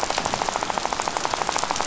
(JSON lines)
{"label": "biophony, rattle", "recorder": "SoundTrap 500"}